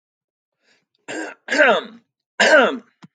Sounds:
Throat clearing